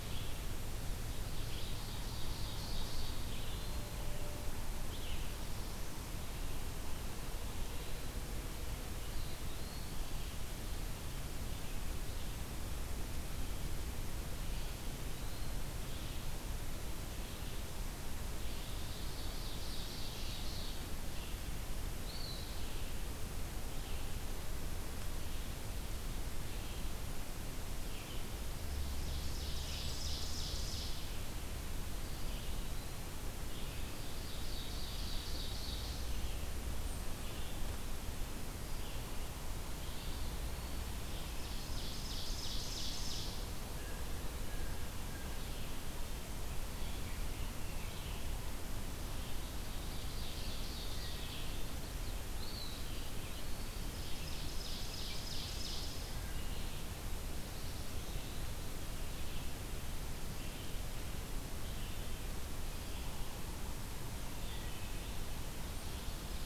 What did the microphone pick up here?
Red-eyed Vireo, Ovenbird, Eastern Wood-Pewee, Blue Jay, Black-throated Blue Warbler, Wood Thrush